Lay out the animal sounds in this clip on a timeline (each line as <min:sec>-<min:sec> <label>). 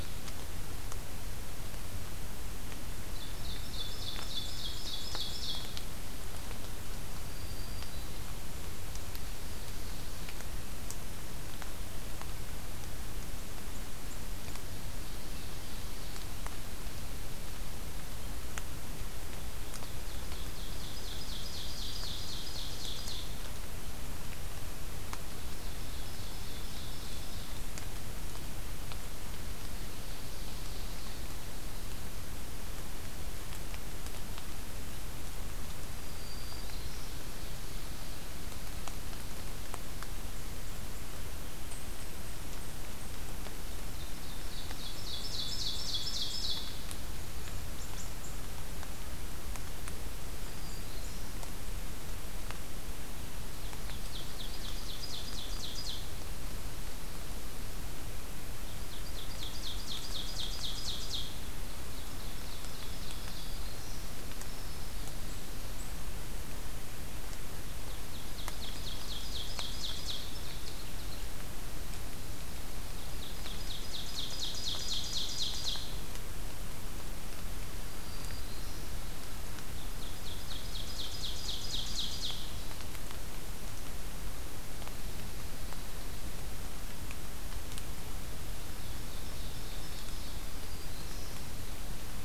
0:02.7-0:06.0 Ovenbird (Seiurus aurocapilla)
0:06.9-0:08.4 Black-throated Green Warbler (Setophaga virens)
0:19.7-0:23.3 Ovenbird (Seiurus aurocapilla)
0:25.5-0:27.9 Ovenbird (Seiurus aurocapilla)
0:29.6-0:31.5 Ovenbird (Seiurus aurocapilla)
0:35.8-0:37.2 Black-throated Green Warbler (Setophaga virens)
0:36.9-0:38.2 Ovenbird (Seiurus aurocapilla)
0:41.4-0:43.3 Eastern Chipmunk (Tamias striatus)
0:43.9-0:46.9 Ovenbird (Seiurus aurocapilla)
0:47.3-0:51.3 Eastern Chipmunk (Tamias striatus)
0:50.3-0:51.4 Black-throated Green Warbler (Setophaga virens)
0:53.5-0:56.3 Ovenbird (Seiurus aurocapilla)
0:58.5-1:03.9 Ovenbird (Seiurus aurocapilla)
1:02.9-1:05.2 Black-throated Green Warbler (Setophaga virens)
1:05.0-1:06.0 Eastern Chipmunk (Tamias striatus)
1:07.6-1:11.3 Ovenbird (Seiurus aurocapilla)
1:13.0-1:15.9 Ovenbird (Seiurus aurocapilla)
1:17.6-1:19.1 Black-throated Green Warbler (Setophaga virens)
1:19.6-1:22.7 Ovenbird (Seiurus aurocapilla)
1:28.6-1:30.5 Ovenbird (Seiurus aurocapilla)
1:30.3-1:31.4 Black-throated Green Warbler (Setophaga virens)